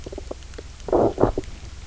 {"label": "biophony, low growl", "recorder": "SoundTrap 300"}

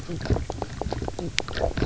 {"label": "biophony, knock croak", "recorder": "SoundTrap 300"}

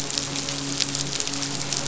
{"label": "biophony, midshipman", "recorder": "SoundTrap 500"}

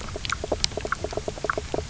{"label": "biophony, knock croak", "recorder": "SoundTrap 300"}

